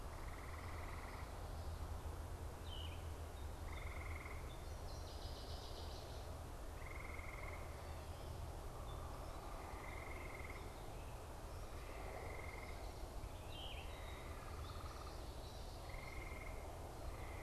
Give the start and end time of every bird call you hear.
2.4s-3.2s: Yellow-throated Vireo (Vireo flavifrons)
4.4s-6.4s: Northern Waterthrush (Parkesia noveboracensis)
13.1s-14.1s: Yellow-throated Vireo (Vireo flavifrons)
14.8s-16.3s: Common Yellowthroat (Geothlypis trichas)

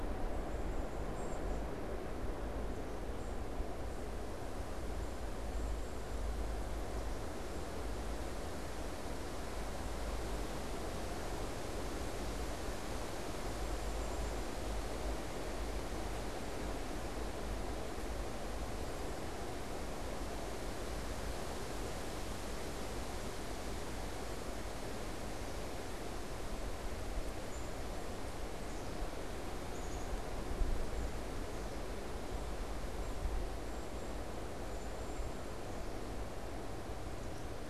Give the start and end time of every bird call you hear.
0.9s-8.2s: unidentified bird
13.5s-14.5s: Black-capped Chickadee (Poecile atricapillus)
27.2s-30.1s: Black-capped Chickadee (Poecile atricapillus)
30.8s-37.7s: unidentified bird

